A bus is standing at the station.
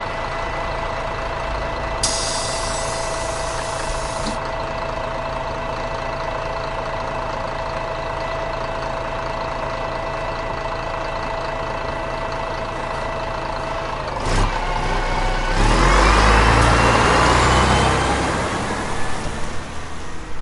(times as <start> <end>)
0.0 14.2